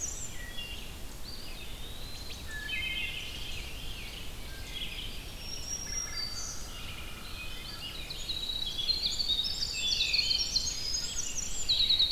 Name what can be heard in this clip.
Red-eyed Vireo, Wood Thrush, Eastern Wood-Pewee, Veery, Black-throated Green Warbler, Winter Wren